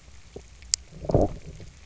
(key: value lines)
label: biophony, low growl
recorder: SoundTrap 300